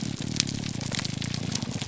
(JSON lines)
{"label": "biophony, grouper groan", "recorder": "SoundTrap 300"}